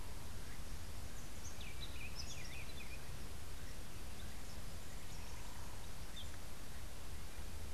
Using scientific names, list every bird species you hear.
Saltator maximus, Euphonia hirundinacea